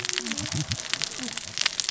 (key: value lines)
label: biophony, cascading saw
recorder: SoundTrap 600 or HydroMoth